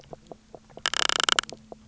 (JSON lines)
{"label": "biophony, knock croak", "recorder": "SoundTrap 300"}